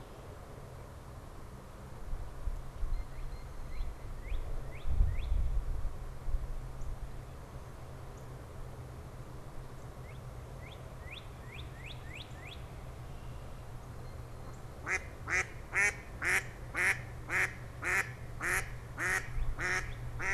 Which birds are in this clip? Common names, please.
Northern Cardinal, Mallard